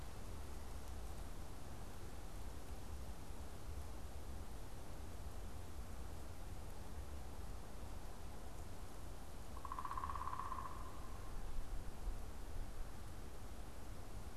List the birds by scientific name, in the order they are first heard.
unidentified bird